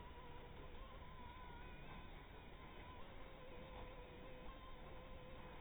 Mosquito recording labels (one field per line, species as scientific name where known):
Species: Anopheles harrisoni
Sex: female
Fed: blood-fed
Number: one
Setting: cup